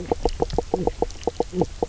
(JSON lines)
{"label": "biophony, knock croak", "recorder": "SoundTrap 300"}